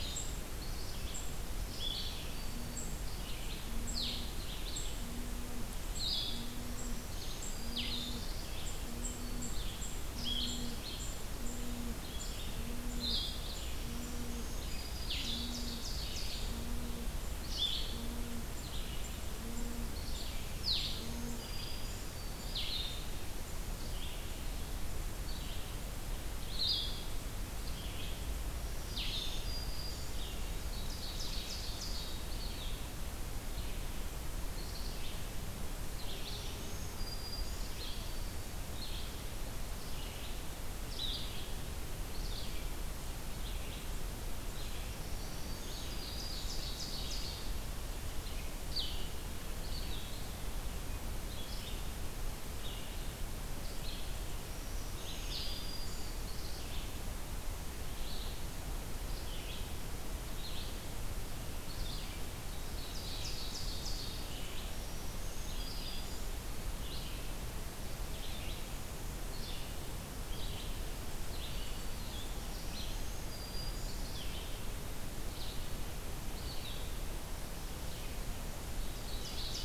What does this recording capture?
unknown mammal, Red-eyed Vireo, Blue-headed Vireo, Black-throated Green Warbler, Ovenbird